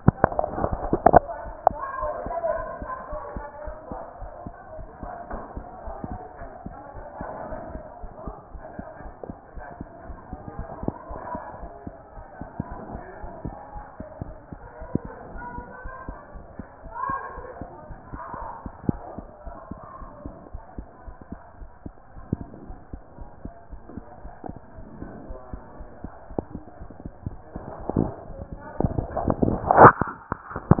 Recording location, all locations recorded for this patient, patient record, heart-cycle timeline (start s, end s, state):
aortic valve (AV)
aortic valve (AV)+pulmonary valve (PV)+tricuspid valve (TV)+mitral valve (MV)
#Age: Child
#Sex: Female
#Height: 111.0 cm
#Weight: 20.3 kg
#Pregnancy status: False
#Murmur: Absent
#Murmur locations: nan
#Most audible location: nan
#Systolic murmur timing: nan
#Systolic murmur shape: nan
#Systolic murmur grading: nan
#Systolic murmur pitch: nan
#Systolic murmur quality: nan
#Diastolic murmur timing: nan
#Diastolic murmur shape: nan
#Diastolic murmur grading: nan
#Diastolic murmur pitch: nan
#Diastolic murmur quality: nan
#Outcome: Abnormal
#Campaign: 2014 screening campaign
0.00	3.10	unannotated
3.10	3.22	S1
3.22	3.34	systole
3.34	3.44	S2
3.44	3.66	diastole
3.66	3.76	S1
3.76	3.90	systole
3.90	4.00	S2
4.00	4.20	diastole
4.20	4.32	S1
4.32	4.44	systole
4.44	4.54	S2
4.54	4.78	diastole
4.78	4.88	S1
4.88	5.02	systole
5.02	5.12	S2
5.12	5.30	diastole
5.30	5.40	S1
5.40	5.56	systole
5.56	5.64	S2
5.64	5.86	diastole
5.86	5.96	S1
5.96	6.10	systole
6.10	6.20	S2
6.20	6.40	diastole
6.40	6.50	S1
6.50	6.66	systole
6.66	6.76	S2
6.76	6.96	diastole
6.96	7.06	S1
7.06	7.20	systole
7.20	7.28	S2
7.28	7.48	diastole
7.48	7.60	S1
7.60	7.74	systole
7.74	7.82	S2
7.82	8.02	diastole
8.02	8.12	S1
8.12	8.26	systole
8.26	8.36	S2
8.36	8.54	diastole
8.54	8.64	S1
8.64	8.78	systole
8.78	8.86	S2
8.86	9.02	diastole
9.02	9.14	S1
9.14	9.28	systole
9.28	9.38	S2
9.38	9.56	diastole
9.56	9.66	S1
9.66	9.78	systole
9.78	9.88	S2
9.88	10.08	diastole
10.08	10.18	S1
10.18	10.30	systole
10.30	10.38	S2
10.38	10.58	diastole
10.58	10.68	S1
10.68	10.82	systole
10.82	10.91	S2
10.91	11.10	diastole
11.10	11.20	S1
11.20	11.34	systole
11.34	11.42	S2
11.42	11.60	diastole
11.60	11.70	S1
11.70	11.86	systole
11.86	11.94	S2
11.94	12.18	diastole
12.18	12.26	S1
12.26	12.40	systole
12.40	12.48	S2
12.48	12.71	diastole
12.71	30.80	unannotated